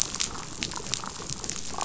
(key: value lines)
label: biophony, damselfish
recorder: SoundTrap 500